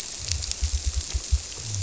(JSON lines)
{"label": "biophony", "recorder": "SoundTrap 300"}